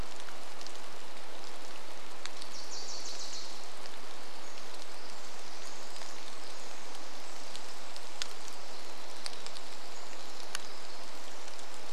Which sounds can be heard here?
rain, Wilson's Warbler song, Pacific Wren song